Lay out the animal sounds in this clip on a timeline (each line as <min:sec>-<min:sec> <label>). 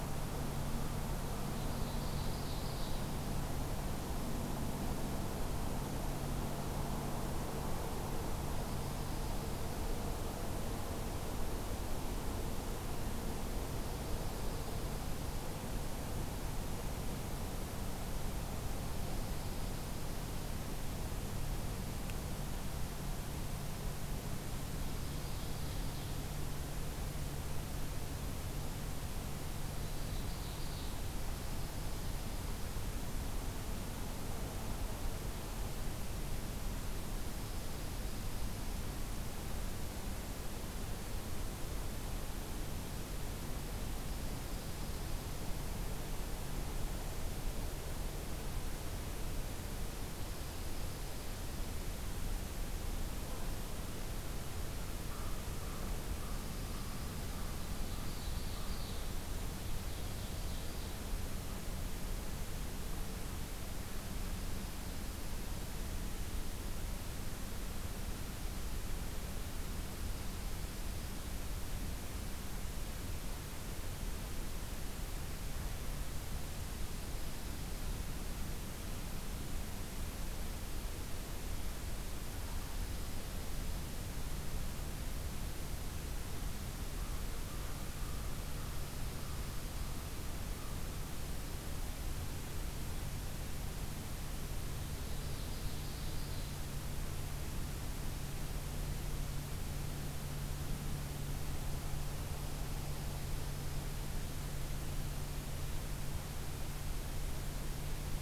0:01.6-0:03.1 Ovenbird (Seiurus aurocapilla)
0:08.5-0:09.8 Dark-eyed Junco (Junco hyemalis)
0:14.0-0:15.4 Dark-eyed Junco (Junco hyemalis)
0:24.9-0:26.1 Ovenbird (Seiurus aurocapilla)
0:29.8-0:31.0 Ovenbird (Seiurus aurocapilla)
0:37.2-0:38.6 Dark-eyed Junco (Junco hyemalis)
0:50.2-0:51.6 Dark-eyed Junco (Junco hyemalis)
0:55.1-0:58.9 American Crow (Corvus brachyrhynchos)
0:58.0-0:59.1 Ovenbird (Seiurus aurocapilla)
0:59.8-1:01.0 Ovenbird (Seiurus aurocapilla)
1:26.9-1:30.8 American Crow (Corvus brachyrhynchos)
1:35.1-1:36.6 Ovenbird (Seiurus aurocapilla)